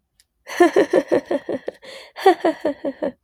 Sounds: Laughter